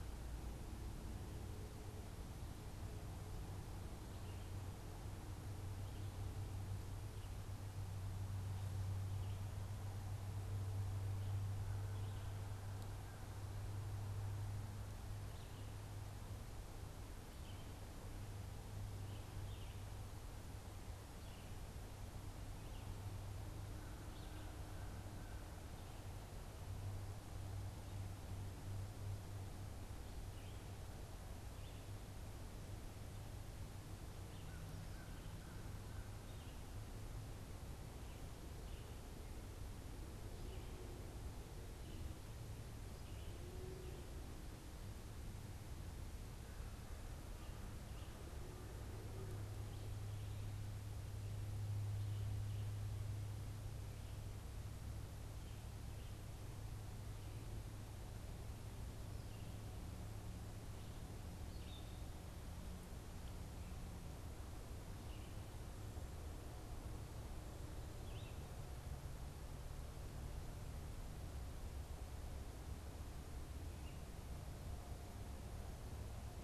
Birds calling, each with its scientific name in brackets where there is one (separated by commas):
Red-eyed Vireo (Vireo olivaceus), American Crow (Corvus brachyrhynchos)